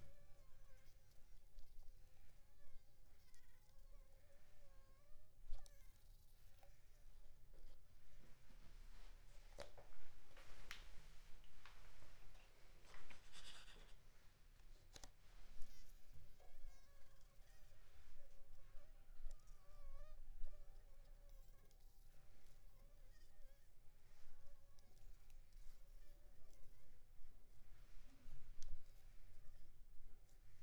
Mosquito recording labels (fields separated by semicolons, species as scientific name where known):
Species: Anopheles funestus s.s.; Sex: female; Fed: unfed; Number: one; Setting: cup